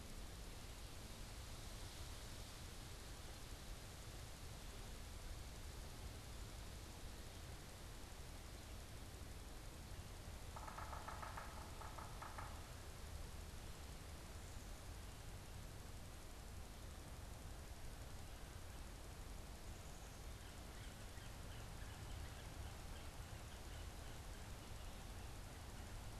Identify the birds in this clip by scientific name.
Sphyrapicus varius, unidentified bird